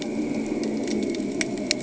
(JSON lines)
{"label": "anthrophony, boat engine", "recorder": "HydroMoth"}